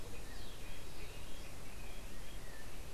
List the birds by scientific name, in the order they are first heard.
Momotus aequatorialis